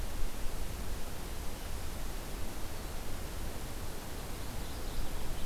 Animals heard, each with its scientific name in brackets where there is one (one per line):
Mourning Warbler (Geothlypis philadelphia)